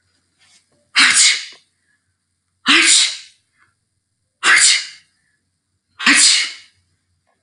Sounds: Sneeze